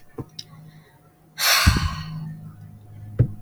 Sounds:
Sigh